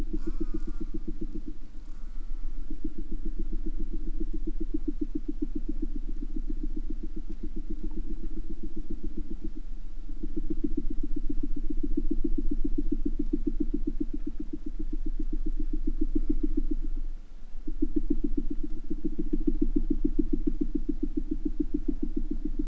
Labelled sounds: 0.0	0.9	killer whale, southern resident, J pod, call S04, 0.61 to 8.0 kHz
1.7	2.7	killer whale, southern resident, J pod, call S04, 0.65 to 8.0 kHz
16.1	16.9	killer whale, southern resident, J pod, call S04, 0.40 to 8.0 kHz

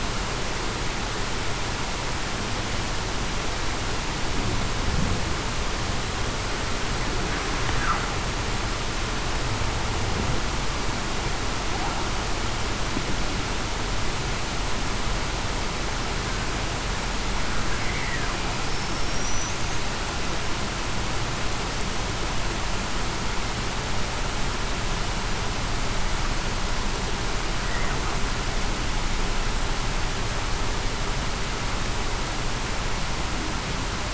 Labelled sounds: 18.7	19.0	killer whale, Bigg's (transient), 5.3 to 5.5 kHz

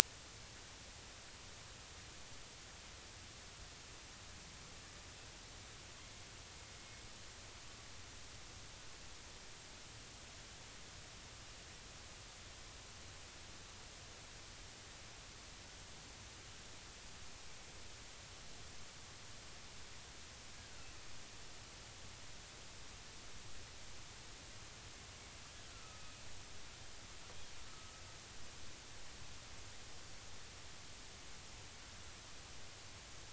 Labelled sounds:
25.7	26.0	killer whale, northern resident, A clan, AA subclan, 1.2 to 1.4 kHz
27.7	27.9	killer whale, northern resident, A clan, AA subclan, 1.2 to 1.4 kHz

